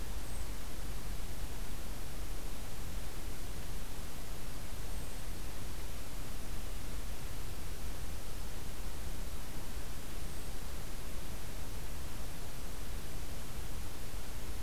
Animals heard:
forest ambience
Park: Acadia National Park